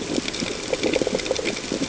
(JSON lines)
{"label": "ambient", "recorder": "HydroMoth"}